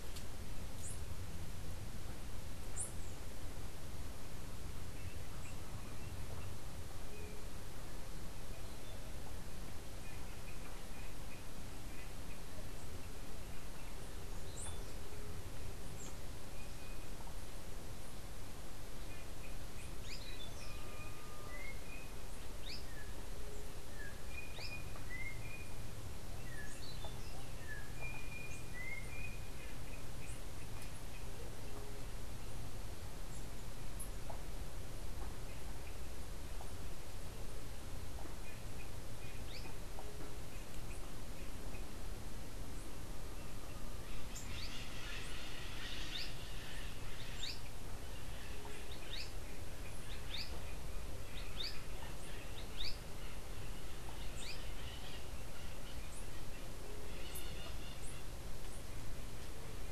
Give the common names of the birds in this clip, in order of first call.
Azara's Spinetail, unidentified bird